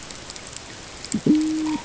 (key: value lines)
label: ambient
recorder: HydroMoth